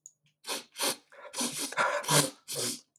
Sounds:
Sniff